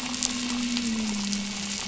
{"label": "anthrophony, boat engine", "recorder": "SoundTrap 500"}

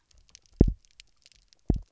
{"label": "biophony, double pulse", "recorder": "SoundTrap 300"}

